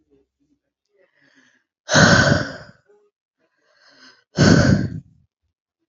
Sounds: Sigh